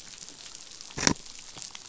{"label": "biophony", "recorder": "SoundTrap 500"}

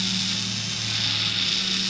{"label": "anthrophony, boat engine", "recorder": "SoundTrap 500"}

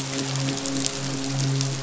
{"label": "biophony, midshipman", "recorder": "SoundTrap 500"}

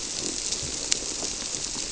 {"label": "biophony", "recorder": "SoundTrap 300"}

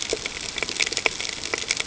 {"label": "ambient", "recorder": "HydroMoth"}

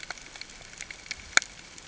{"label": "ambient", "recorder": "HydroMoth"}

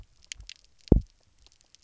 {"label": "biophony, double pulse", "recorder": "SoundTrap 300"}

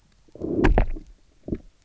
{"label": "biophony, low growl", "recorder": "SoundTrap 300"}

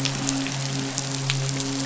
{"label": "biophony, midshipman", "recorder": "SoundTrap 500"}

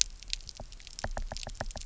{"label": "biophony, knock", "recorder": "SoundTrap 300"}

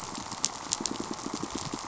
{"label": "biophony, pulse", "recorder": "SoundTrap 500"}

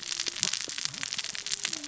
{"label": "biophony, cascading saw", "recorder": "SoundTrap 600 or HydroMoth"}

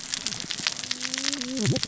{"label": "biophony, cascading saw", "recorder": "SoundTrap 600 or HydroMoth"}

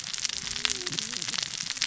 {"label": "biophony, cascading saw", "recorder": "SoundTrap 600 or HydroMoth"}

